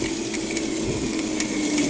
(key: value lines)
label: anthrophony, boat engine
recorder: HydroMoth